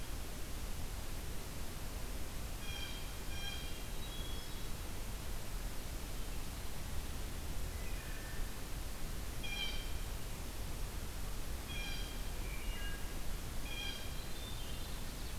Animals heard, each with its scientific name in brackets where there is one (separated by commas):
Ovenbird (Seiurus aurocapilla), Wood Thrush (Hylocichla mustelina), Blue Jay (Cyanocitta cristata), Hermit Thrush (Catharus guttatus)